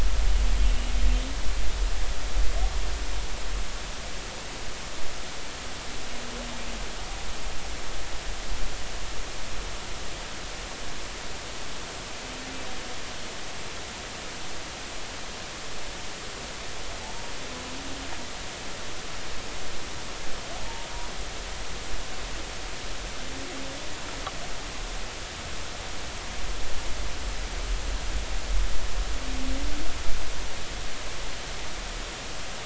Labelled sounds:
17.0	17.3	humpback whale, 0.80 to 0.96 kHz

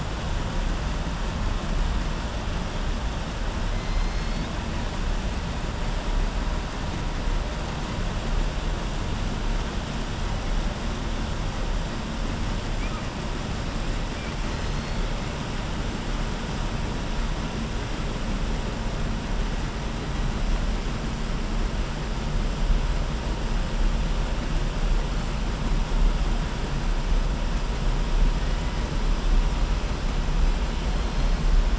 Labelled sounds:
3.8	4.5	killer whale, southern resident, 3.3 to 6.4 kHz

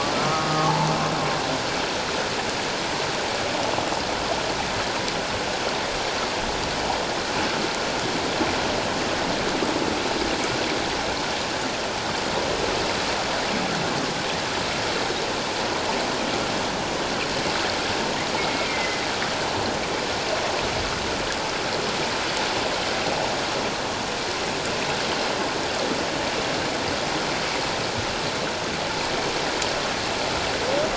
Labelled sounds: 18.4	19.1	humpback whale, 2.0 to 2.3 kHz

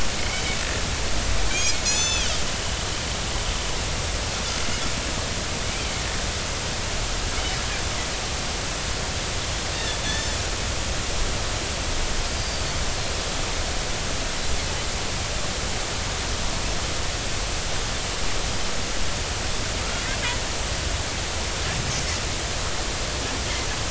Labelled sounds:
0.2	0.4	Pacific white-sided dolphin, 2.1 to 2.4 kHz
1.5	2.3	Pacific white-sided dolphin, 2.1 to 7.1 kHz
9.7	10.3	Pacific white-sided dolphin, 1.7 to 3.7 kHz
12.3	12.6	Pacific white-sided dolphin, 4.6 to 4.8 kHz

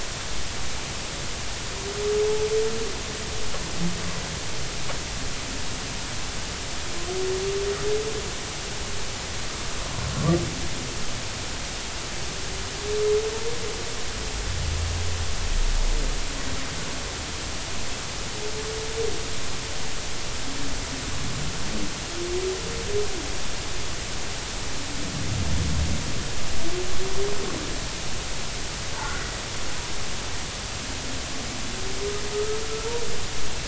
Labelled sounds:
28.9	29.3	humpback whale, 1.3 to 1.6 kHz
32.3	32.6	humpback whale, 1.2 to 1.3 kHz

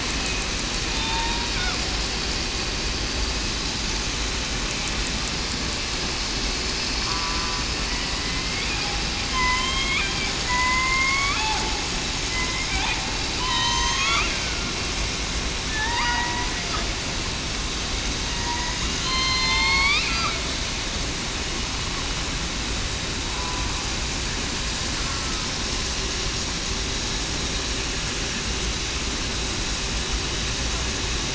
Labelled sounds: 0.9	1.5	killer whale, southern resident, 3.6 to 3.8 kHz
7.0	7.4	killer whale, southern resident, 0.96 to 1.1 kHz
7.9	8.5	killer whale, southern resident, 1.9 to 2.1 kHz
9.3	10.1	killer whale, southern resident, 0.96 to 3.5 kHz
10.5	11.4	killer whale, southern resident, 0.96 to 2.4 kHz
13.4	14.7	killer whale, southern resident, 1.0 to 6.9 kHz
15.7	16.5	killer whale, southern resident, 0.84 to 2.0 kHz
18.3	18.7	killer whale, southern resident, 0.91 to 1.0 kHz
19.0	20.4	killer whale, southern resident, 0.87 to 3.2 kHz
25.0	25.5	killer whale, southern resident, 1.2 to 1.4 kHz

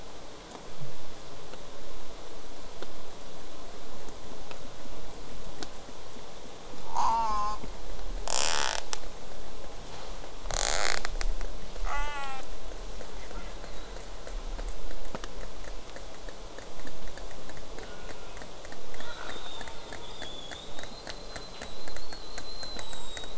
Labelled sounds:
6.9	7.6	killer whale, southern resident, J pod, call S04, 0.46 to 8.0 kHz
8.3	8.8	killer whale, southern resident, J pod, rasp, 0.39 to 8.0 kHz
10.5	11.0	killer whale, southern resident, J pod, rasp, 0.23 to 8.0 kHz
11.9	12.4	killer whale, southern resident, J pod, call S04, 0.46 to 8.0 kHz
13.1	14.0	killer whale, southern resident, J pod, 1.0 to 4.4 kHz
17.8	18.4	killer whale, southern resident, J pod, call S04, 0.35 to 2.7 kHz
19.0	23.3	killer whale, southern resident, J pod, 0.42 to 8.0 kHz
19.6	20.2	killer whale, southern resident, J pod, call S04, 0.31 to 2.2 kHz

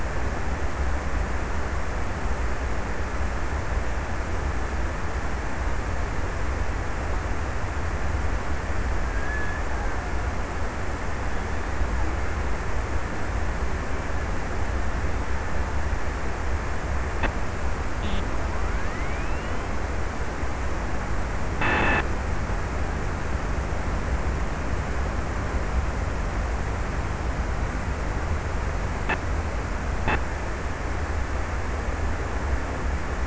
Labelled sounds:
8.7	10.6	killer whale, Bigg's (transient), 1.1 to 1.9 kHz

